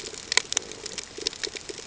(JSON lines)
{"label": "ambient", "recorder": "HydroMoth"}